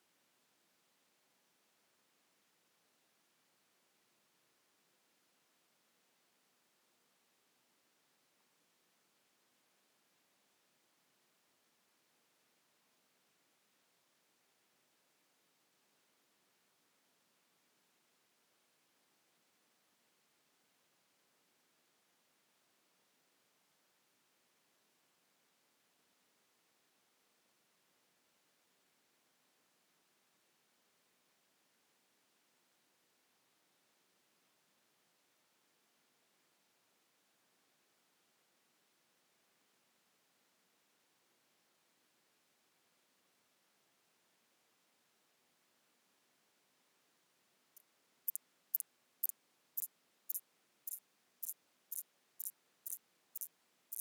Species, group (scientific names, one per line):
Thyreonotus corsicus
Orthoptera